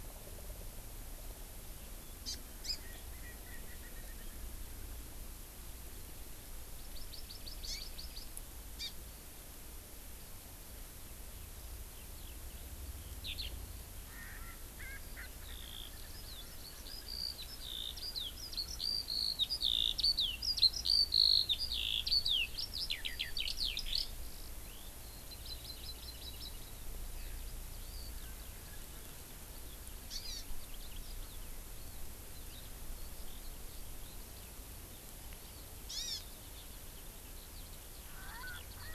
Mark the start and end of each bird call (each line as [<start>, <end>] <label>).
[2.24, 2.34] Hawaii Amakihi (Chlorodrepanis virens)
[2.64, 2.74] Hawaii Amakihi (Chlorodrepanis virens)
[2.84, 4.34] Erckel's Francolin (Pternistis erckelii)
[6.94, 8.24] Hawaii Amakihi (Chlorodrepanis virens)
[8.74, 8.94] Hawaii Amakihi (Chlorodrepanis virens)
[13.24, 13.54] Eurasian Skylark (Alauda arvensis)
[14.04, 16.24] Erckel's Francolin (Pternistis erckelii)
[14.94, 24.14] Eurasian Skylark (Alauda arvensis)
[25.24, 26.74] Hawaii Amakihi (Chlorodrepanis virens)
[27.04, 29.74] Eurasian Skylark (Alauda arvensis)
[30.04, 30.44] Hawaii Amakihi (Chlorodrepanis virens)
[32.84, 38.94] Eurasian Skylark (Alauda arvensis)
[35.84, 36.24] Hawaii Amakihi (Chlorodrepanis virens)
[38.14, 38.94] Erckel's Francolin (Pternistis erckelii)